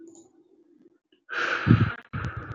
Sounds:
Sigh